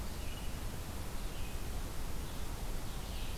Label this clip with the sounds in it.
Red-eyed Vireo, Ovenbird